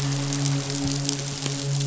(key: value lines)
label: biophony, midshipman
recorder: SoundTrap 500